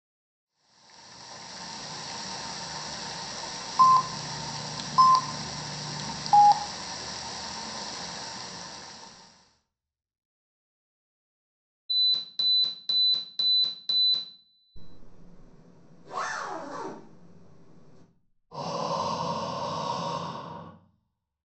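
From 0.4 to 9.7 seconds, rain falls, fading in and fading out. Over it, at 3.8 seconds, a telephone is audible. Then, at 11.9 seconds, an alarm is heard. After that, at 14.8 seconds, you can hear a zipper. Finally, at 18.5 seconds, someone breathes.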